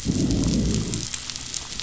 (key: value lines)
label: biophony, growl
recorder: SoundTrap 500